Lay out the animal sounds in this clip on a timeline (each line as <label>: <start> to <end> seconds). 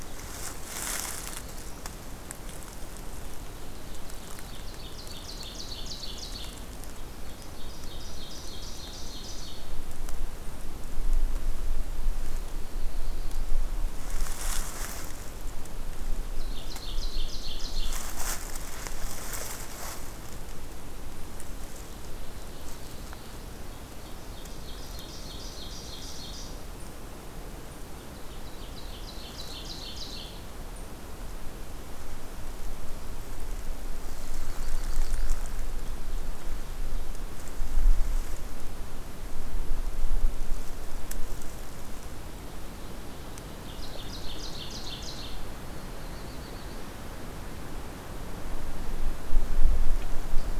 Ovenbird (Seiurus aurocapilla): 4.0 to 6.8 seconds
Ovenbird (Seiurus aurocapilla): 7.2 to 9.9 seconds
Ovenbird (Seiurus aurocapilla): 16.1 to 18.2 seconds
Ovenbird (Seiurus aurocapilla): 21.7 to 26.8 seconds
Ovenbird (Seiurus aurocapilla): 28.3 to 30.7 seconds
Black-throated Blue Warbler (Setophaga caerulescens): 33.7 to 35.7 seconds
Ovenbird (Seiurus aurocapilla): 43.5 to 45.6 seconds
Black-throated Blue Warbler (Setophaga caerulescens): 45.7 to 46.9 seconds